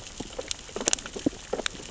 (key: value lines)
label: biophony, sea urchins (Echinidae)
recorder: SoundTrap 600 or HydroMoth